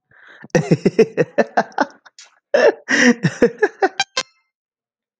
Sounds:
Laughter